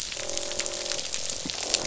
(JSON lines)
{"label": "biophony, croak", "recorder": "SoundTrap 500"}